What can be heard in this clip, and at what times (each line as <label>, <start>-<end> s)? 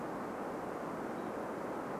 unidentified bird chip note, 0-2 s